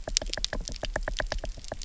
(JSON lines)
{"label": "biophony, knock", "recorder": "SoundTrap 300"}